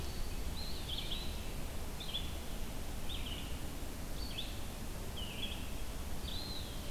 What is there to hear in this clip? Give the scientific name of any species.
Vireo olivaceus, Contopus virens